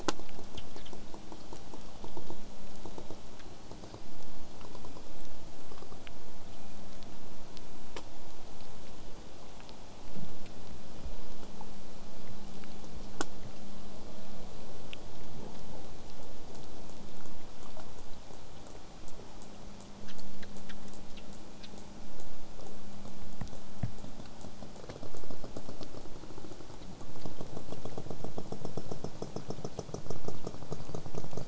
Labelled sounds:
3.4	4.1	killer whale, southern resident, J pod, whistle, 3.8 to 5.0 kHz
4.3	5.1	killer whale, southern resident, J pod, whistle, 4.0 to 5.4 kHz
6.0	11.0	vessel noise, 0.04 to 8.0 kHz
19.1	25.7	killer whale, southern resident, J pod, 3.8 to 8.0 kHz

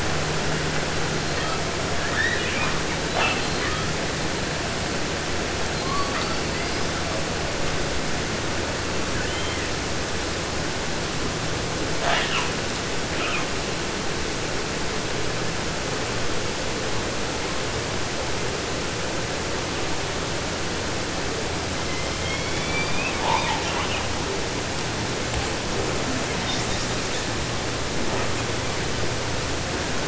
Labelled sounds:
0.9	1.7	killer whale, 0.53 to 6.1 kHz
1.9	2.8	killer whale, southern resident, J pod, call S02i, 0.31 to 6.1 kHz
3.1	4.0	killer whale, 0.14 to 6.3 kHz
5.7	7.2	killer whale, 0.72 to 5.2 kHz
9.1	9.8	killer whale, southern resident, 0.50 to 3.8 kHz
12.0	12.6	killer whale, 0.34 to 8.0 kHz
13.0	13.6	killer whale, 0.16 to 4.0 kHz
21.7	24.1	killer whale, 0.50 to 7.3 kHz
25.6	27.3	killer whale, southern resident, call S10, 3.0 to 8.0 kHz

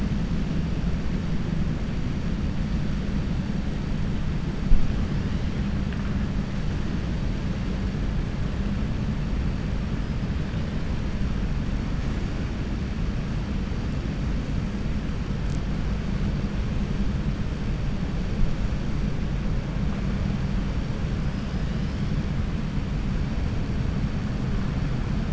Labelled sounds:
21.2	22.0	killer whale, 2.8 to 5.2 kHz

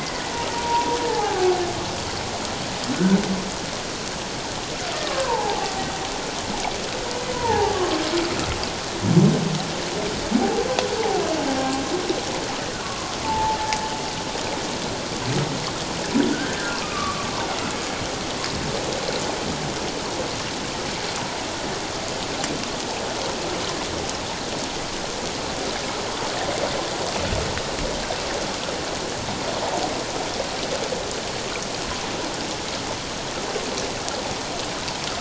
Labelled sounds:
0.0	1.5	humpback whale, 0.78 to 2.1 kHz
2.9	3.2	humpback whale, 1.3 to 1.6 kHz
5.0	5.7	humpback whale, 0.78 to 1.2 kHz
7.3	8.0	humpback whale, 0.78 to 1.2 kHz
10.4	10.7	humpback whale, 0.78 to 0.91 kHz
12.8	13.6	humpback whale, 0.81 to 1.2 kHz
16.3	17.3	humpback whale, 1.1 to 1.8 kHz

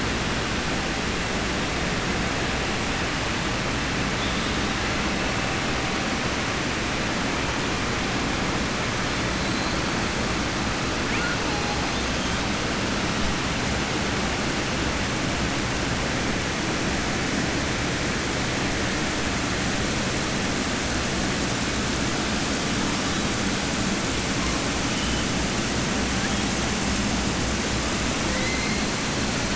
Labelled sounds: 28.3	28.8	killer whale, southern resident, 1.9 to 2.6 kHz

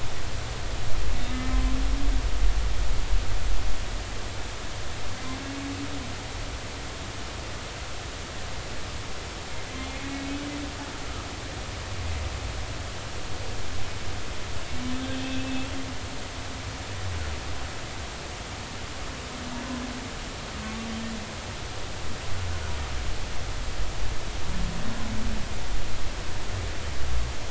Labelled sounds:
1.3	1.7	humpback whale, 0.99 to 2.1 kHz
10.1	10.4	humpback whale, 2.2 to 2.3 kHz
15.2	15.7	humpback whale, 2.5 to 2.8 kHz

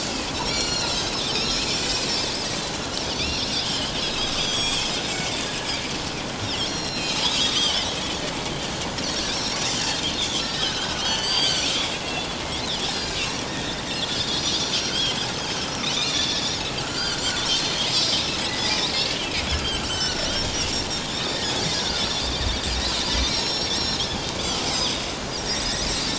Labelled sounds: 0.3	2.0	Pacific white-sided dolphin, 2.3 to 7.7 kHz
3.2	5.4	Pacific white-sided dolphin, 2.1 to 7.8 kHz
6.4	7.9	Pacific white-sided dolphin, 2.7 to 6.9 kHz
9.0	9.6	Pacific white-sided dolphin, 4.2 to 6.2 kHz
10.1	11.7	Pacific white-sided dolphin, 1.3 to 7.9 kHz
12.4	13.8	Pacific white-sided dolphin, 1.6 to 4.2 kHz
14.3	14.6	Pacific white-sided dolphin, 5.5 to 6.0 kHz
15.3	15.6	Pacific white-sided dolphin, 6.3 to 6.6 kHz
15.8	17.2	Pacific white-sided dolphin, 1.3 to 7.0 kHz
18.0	18.9	Pacific white-sided dolphin, 1.9 to 6.1 kHz
19.2	20.3	Pacific white-sided dolphin, 1.3 to 7.8 kHz
21.0	21.4	Pacific white-sided dolphin, 3.2 to 4.1 kHz
22.8	23.7	Pacific white-sided dolphin, 3.6 to 6.9 kHz
24.0	25.0	Pacific white-sided dolphin, 3.0 to 5.3 kHz
25.4	25.7	Pacific white-sided dolphin, 5.4 to 5.9 kHz

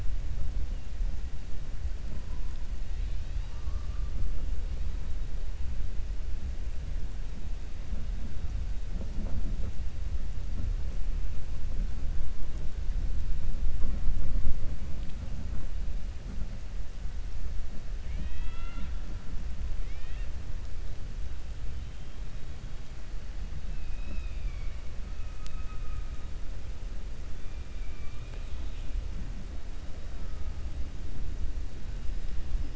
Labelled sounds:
18.0	19.0	killer whale, 0.19 to 4.2 kHz
19.8	20.3	killer whale, 1.0 to 4.3 kHz
23.7	24.8	killer whale, 2.1 to 5.3 kHz
28.0	28.9	killer whale, 0.91 to 4.2 kHz

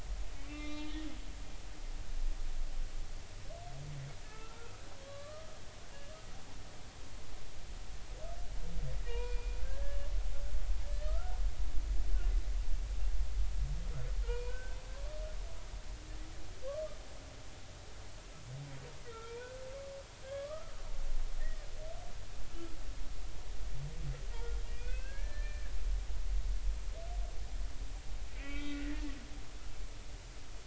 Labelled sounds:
0.4	1.1	humpback whale, 1.1 to 4.0 kHz
4.3	5.6	humpback whale, 1.1 to 1.4 kHz
5.9	6.2	humpback whale, 1.5 to 1.7 kHz
9.1	10.0	humpback whale, 0.90 to 4.0 kHz
11.0	11.4	humpback whale, 1.2 to 1.5 kHz
14.2	14.8	humpback whale, 0.90 to 2.6 kHz
19.0	19.5	humpback whale, 0.90 to 2.6 kHz
20.2	20.7	humpback whale, 1.1 to 1.7 kHz
21.4	21.7	humpback whale, 1.8 to 2.0 kHz
24.8	26.2	humpback whale, 1.4 to 4.2 kHz
28.3	29.1	humpback whale, 1.3 to 3.3 kHz

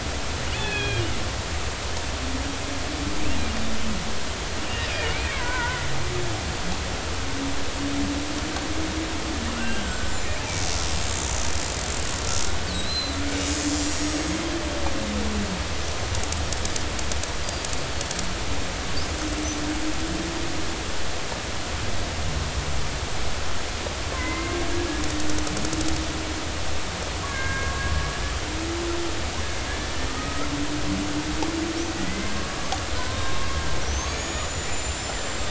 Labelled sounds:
0.5	1.0	killer whale, Bigg's (transient), 1.6 to 3.6 kHz
4.9	5.9	killer whale, Bigg's (transient), 0.90 to 2.6 kHz
9.5	10.1	killer whale, Bigg's (transient), 1.3 to 7.6 kHz
12.8	13.2	killer whale, Bigg's (transient), 3.9 to 4.2 kHz
13.7	14.1	killer whale, Bigg's (transient), 5.5 to 7.5 kHz
24.1	24.6	killer whale, Bigg's (transient), 0.93 to 2.2 kHz
27.2	27.8	killer whale, Bigg's (transient), 1.0 to 2.2 kHz
30.2	30.5	killer whale, Bigg's (transient), 1.2 to 1.4 kHz
32.0	32.3	killer whale, Bigg's (transient), 1.9 to 2.1 kHz
33.0	35.4	killer whale, Bigg's (transient), 0.96 to 7.5 kHz

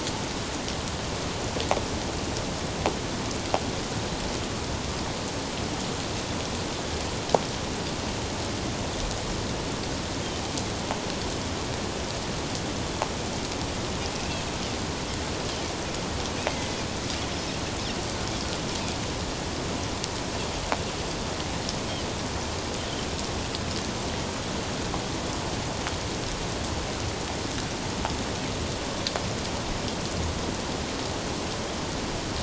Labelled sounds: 14.2	14.4	Pacific white-sided dolphin, 2.5 to 2.8 kHz
16.5	16.8	Pacific white-sided dolphin, 2.0 to 2.2 kHz

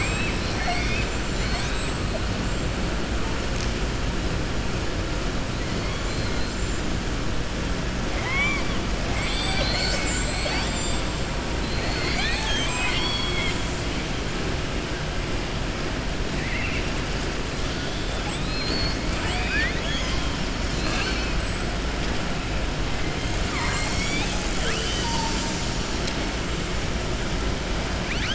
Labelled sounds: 6.1	6.5	killer whale, southern resident, 3.9 to 5.1 kHz
8.1	8.7	killer whale, southern resident, 0.81 to 3.5 kHz
11.6	13.6	killer whale, southern resident, 0.84 to 7.7 kHz
16.3	16.9	killer whale, southern resident, 1.8 to 2.9 kHz
18.2	20.3	killer whale, southern resident, 0.84 to 6.7 kHz

